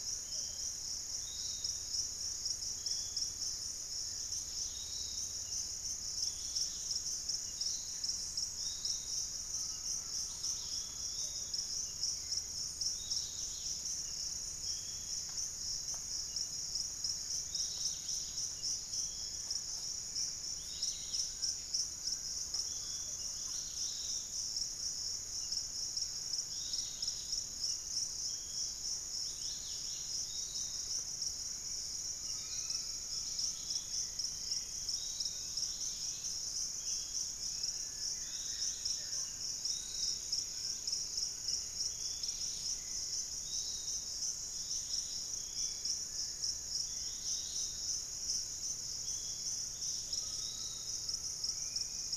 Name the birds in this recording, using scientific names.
Legatus leucophaius, Pachysylvia hypoxantha, Crypturellus undulatus, Cymbilaimus lineatus, unidentified bird, Myiarchus tuberculifer, Myrmotherula menetriesii, Xiphorhynchus guttatus, Crypturellus cinereus